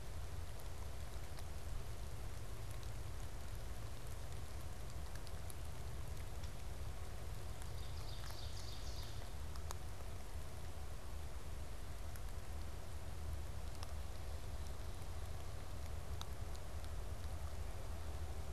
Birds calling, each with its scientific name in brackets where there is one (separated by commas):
Ovenbird (Seiurus aurocapilla)